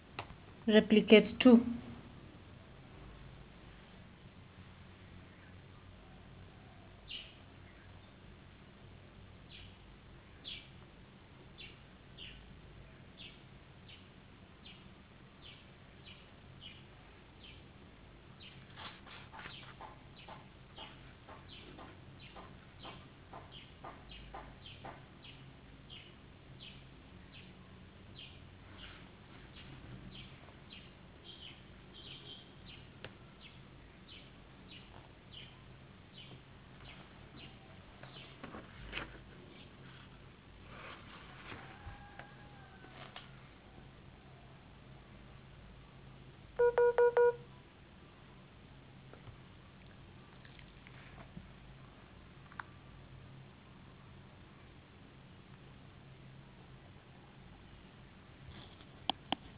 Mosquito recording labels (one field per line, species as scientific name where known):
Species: no mosquito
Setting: insect culture